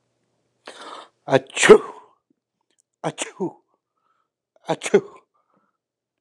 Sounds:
Sneeze